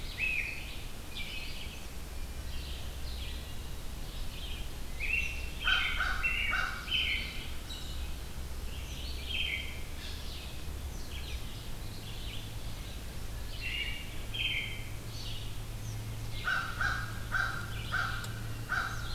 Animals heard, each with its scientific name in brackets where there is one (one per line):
Wood Thrush (Hylocichla mustelina)
Red-eyed Vireo (Vireo olivaceus)
American Crow (Corvus brachyrhynchos)
Eastern Kingbird (Tyrannus tyrannus)
American Robin (Turdus migratorius)